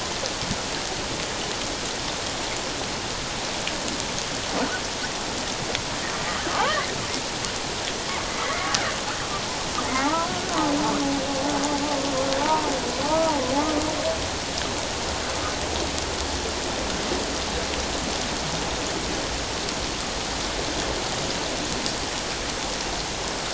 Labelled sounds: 6.6	6.9	humpback whale, 1.4 to 2.2 kHz
8.4	8.7	humpback whale, 1.8 to 2.2 kHz
10.0	10.5	humpback whale, 0.78 to 1.5 kHz
12.4	12.7	humpback whale, 0.84 to 1.0 kHz
13.1	13.4	humpback whale, 1.1 to 1.3 kHz

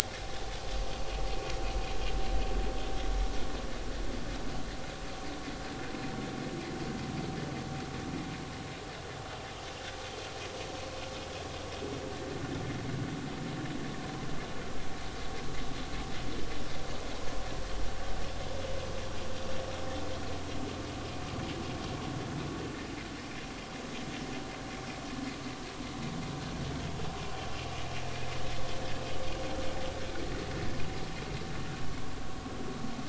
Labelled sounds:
0.2	0.5	vessel noise, 0.80 to 0.86 kHz

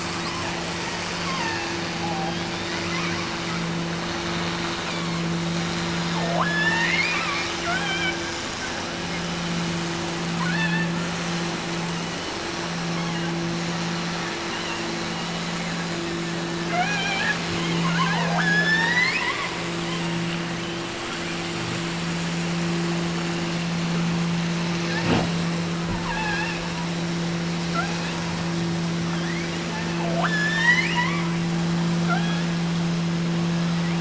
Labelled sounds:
1.1	3.0	killer whale, offshore, 0.64 to 4.0 kHz
4.8	5.3	killer whale, offshore, 0.84 to 4.8 kHz
6.1	8.3	killer whale, offshore, 0.45 to 5.7 kHz
10.3	11.0	killer whale, offshore, 0.59 to 4.6 kHz
12.8	13.5	killer whale, offshore, 0.66 to 3.5 kHz
16.7	19.6	killer whale, offshore, 0.50 to 8.0 kHz
24.8	25.3	killer whale, offshore, 0.66 to 2.0 kHz
25.9	26.7	killer whale, offshore, 0.68 to 5.3 kHz
27.7	28.3	killer whale, offshore, 0.57 to 4.4 kHz
29.1	31.3	killer whale, offshore, 0.43 to 8.0 kHz
32.0	32.6	killer whale, offshore, 0.55 to 3.7 kHz

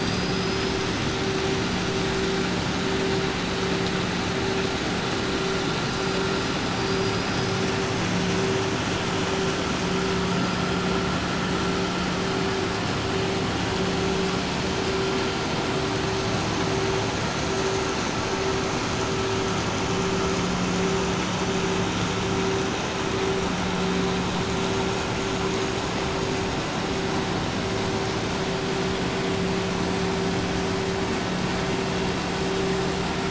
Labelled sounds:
6.7	7.7	killer whale, 4.3 to 6.2 kHz

